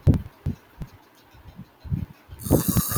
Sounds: Sniff